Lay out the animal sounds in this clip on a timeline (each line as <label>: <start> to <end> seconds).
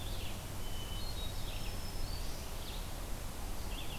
Red-eyed Vireo (Vireo olivaceus): 0.0 to 4.0 seconds
Hermit Thrush (Catharus guttatus): 0.4 to 1.7 seconds
Black-throated Green Warbler (Setophaga virens): 1.4 to 2.7 seconds